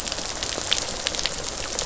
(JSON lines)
{"label": "biophony, rattle response", "recorder": "SoundTrap 500"}